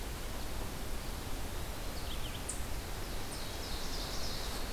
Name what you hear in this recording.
Red-eyed Vireo, Ovenbird